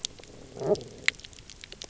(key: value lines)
label: biophony
recorder: SoundTrap 300